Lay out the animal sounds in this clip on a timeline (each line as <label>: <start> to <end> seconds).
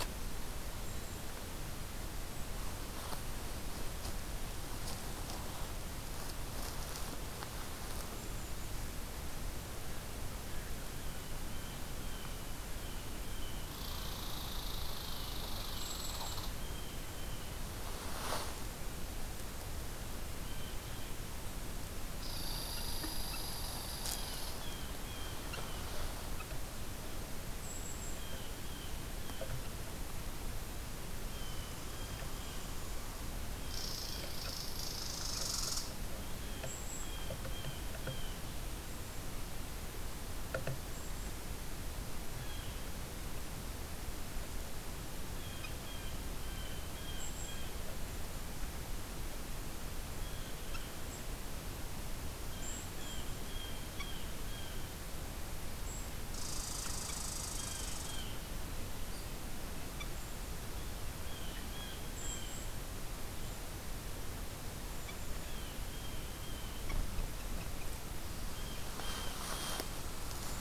Golden-crowned Kinglet (Regulus satrapa): 0.8 to 1.4 seconds
Golden-crowned Kinglet (Regulus satrapa): 8.1 to 8.8 seconds
Blue Jay (Cyanocitta cristata): 10.9 to 13.8 seconds
Red Squirrel (Tamiasciurus hudsonicus): 13.7 to 16.6 seconds
Blue Jay (Cyanocitta cristata): 14.9 to 15.4 seconds
Golden-crowned Kinglet (Regulus satrapa): 15.6 to 16.5 seconds
Blue Jay (Cyanocitta cristata): 16.5 to 17.5 seconds
Blue Jay (Cyanocitta cristata): 20.3 to 21.0 seconds
Red Squirrel (Tamiasciurus hudsonicus): 22.2 to 24.7 seconds
Blue Jay (Cyanocitta cristata): 24.0 to 26.0 seconds
Golden-crowned Kinglet (Regulus satrapa): 27.4 to 28.3 seconds
Blue Jay (Cyanocitta cristata): 28.0 to 29.7 seconds
Blue Jay (Cyanocitta cristata): 31.2 to 32.7 seconds
Blue Jay (Cyanocitta cristata): 33.4 to 34.3 seconds
Red Squirrel (Tamiasciurus hudsonicus): 33.6 to 35.8 seconds
Golden-crowned Kinglet (Regulus satrapa): 36.4 to 37.2 seconds
Blue Jay (Cyanocitta cristata): 36.9 to 38.6 seconds
Blue Jay (Cyanocitta cristata): 42.4 to 42.8 seconds
Blue Jay (Cyanocitta cristata): 45.4 to 48.2 seconds
Golden-crowned Kinglet (Regulus satrapa): 47.0 to 47.8 seconds
Blue Jay (Cyanocitta cristata): 50.0 to 51.2 seconds
Golden-crowned Kinglet (Regulus satrapa): 51.0 to 51.3 seconds
Blue Jay (Cyanocitta cristata): 52.4 to 55.0 seconds
Golden-crowned Kinglet (Regulus satrapa): 52.6 to 53.3 seconds
Golden-crowned Kinglet (Regulus satrapa): 55.9 to 56.2 seconds
Red Squirrel (Tamiasciurus hudsonicus): 56.3 to 58.2 seconds
Blue Jay (Cyanocitta cristata): 57.5 to 58.5 seconds
Blue Jay (Cyanocitta cristata): 61.0 to 62.7 seconds
Golden-crowned Kinglet (Regulus satrapa): 61.9 to 62.9 seconds
Golden-crowned Kinglet (Regulus satrapa): 64.9 to 65.7 seconds
Blue Jay (Cyanocitta cristata): 65.2 to 67.0 seconds
Blue Jay (Cyanocitta cristata): 68.5 to 70.0 seconds